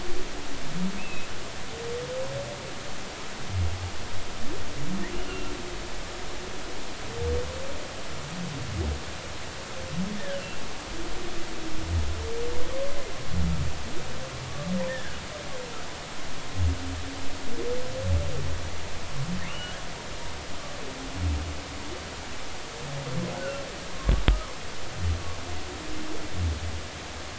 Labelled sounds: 1.0	1.3	humpback whale, 2.3 to 2.8 kHz
5.3	5.5	humpback whale, 2.7 to 2.9 kHz
14.5	15.2	humpback whale, 1.1 to 1.9 kHz
19.5	19.8	humpback whale, 2.6 to 3.0 kHz
23.4	24.6	humpback whale, 0.99 to 1.6 kHz

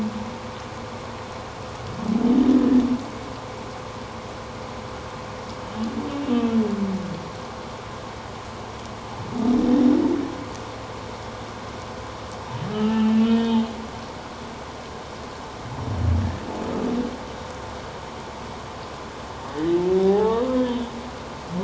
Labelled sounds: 12.7	13.7	humpback whale, 1.2 to 3.7 kHz
20.0	20.9	humpback whale, 0.78 to 3.6 kHz

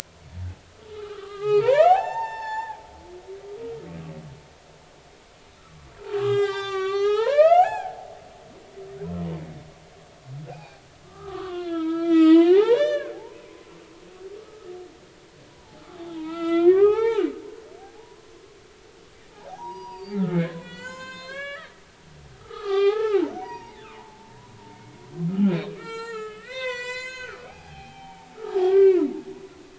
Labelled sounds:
0.9	2.8	humpback whale, 0.80 to 8.0 kHz
6.1	8.0	humpback whale, 0.80 to 8.0 kHz
9.0	9.4	humpback whale, 0.90 to 1.1 kHz
10.5	13.7	humpback whale, 0.80 to 6.1 kHz
14.4	14.7	humpback whale, 1.2 to 1.3 kHz
15.5	17.3	humpback whale, 0.80 to 4.8 kHz
17.8	18.3	humpback whale, 0.80 to 1.1 kHz
19.5	21.8	humpback whale, 0.80 to 7.8 kHz
22.4	25.0	humpback whale, 0.80 to 5.8 kHz
25.4	29.1	humpback whale, 0.80 to 8.0 kHz

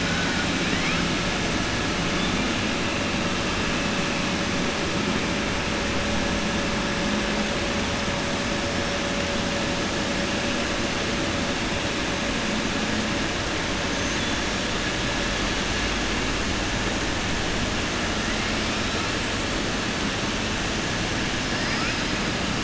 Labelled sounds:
0.0	0.5	killer whale, southern resident, 0.85 to 2.4 kHz

